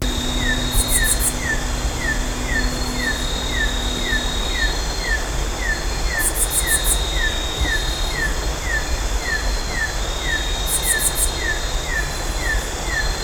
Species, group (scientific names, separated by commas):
Phyllomimus inversus, Orthoptera